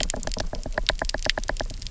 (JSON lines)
{"label": "biophony, knock", "recorder": "SoundTrap 300"}